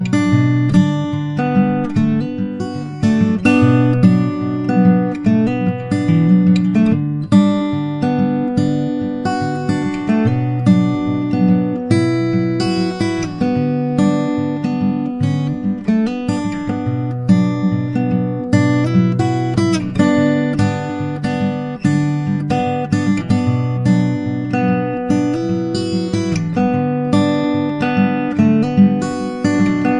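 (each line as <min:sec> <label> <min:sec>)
0:00.0 An acoustic guitar playing a melancholic and melodic tune, evoking a calm and reflective mood. 0:30.0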